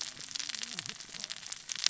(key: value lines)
label: biophony, cascading saw
recorder: SoundTrap 600 or HydroMoth